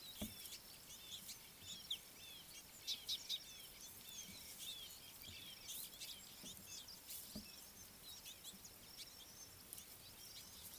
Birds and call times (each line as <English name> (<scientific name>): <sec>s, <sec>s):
Red-fronted Barbet (Tricholaema diademata): 1.7s, 6.8s